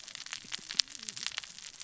{"label": "biophony, cascading saw", "recorder": "SoundTrap 600 or HydroMoth"}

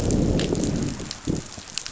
{"label": "biophony, growl", "recorder": "SoundTrap 500"}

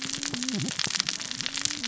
{"label": "biophony, cascading saw", "recorder": "SoundTrap 600 or HydroMoth"}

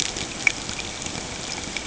{"label": "ambient", "recorder": "HydroMoth"}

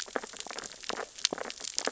{"label": "biophony, sea urchins (Echinidae)", "recorder": "SoundTrap 600 or HydroMoth"}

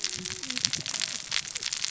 {"label": "biophony, cascading saw", "recorder": "SoundTrap 600 or HydroMoth"}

